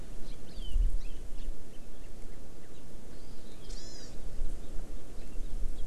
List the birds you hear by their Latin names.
Chlorodrepanis virens